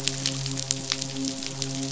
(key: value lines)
label: biophony, midshipman
recorder: SoundTrap 500